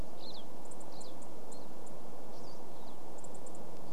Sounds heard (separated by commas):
unidentified bird chip note, Pine Siskin call